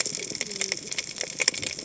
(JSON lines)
{"label": "biophony, cascading saw", "recorder": "HydroMoth"}